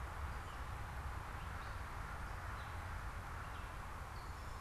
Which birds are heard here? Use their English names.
Gray Catbird